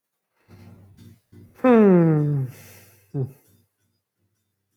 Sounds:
Sigh